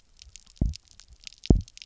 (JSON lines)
{"label": "biophony, double pulse", "recorder": "SoundTrap 300"}